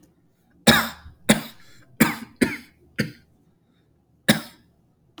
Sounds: Cough